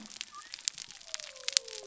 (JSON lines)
{"label": "biophony", "recorder": "SoundTrap 300"}